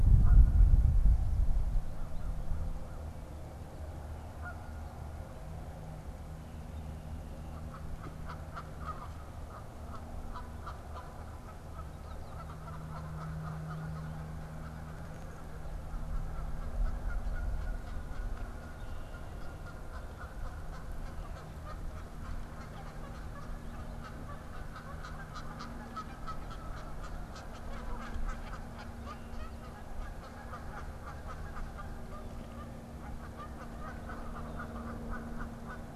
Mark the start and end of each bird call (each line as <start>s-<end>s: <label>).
0.0s-0.6s: Canada Goose (Branta canadensis)
1.6s-3.2s: American Crow (Corvus brachyrhynchos)
7.3s-18.7s: Canada Goose (Branta canadensis)
19.0s-36.0s: Canada Goose (Branta canadensis)